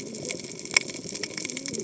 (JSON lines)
{"label": "biophony, cascading saw", "recorder": "HydroMoth"}